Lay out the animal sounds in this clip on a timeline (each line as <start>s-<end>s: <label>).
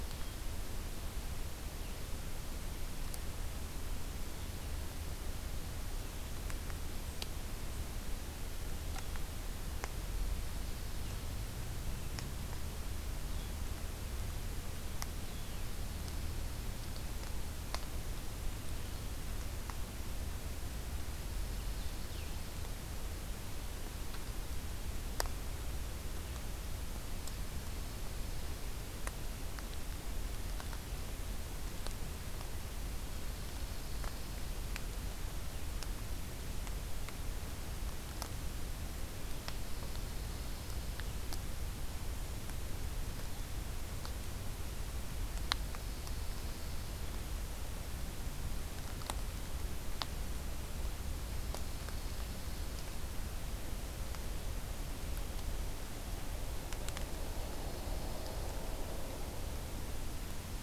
10.9s-15.7s: Blue-headed Vireo (Vireo solitarius)
21.1s-22.6s: Dark-eyed Junco (Junco hyemalis)
33.2s-34.6s: Dark-eyed Junco (Junco hyemalis)
39.4s-41.0s: Dark-eyed Junco (Junco hyemalis)
45.6s-46.9s: Dark-eyed Junco (Junco hyemalis)
51.3s-52.8s: Dark-eyed Junco (Junco hyemalis)
57.2s-58.5s: Dark-eyed Junco (Junco hyemalis)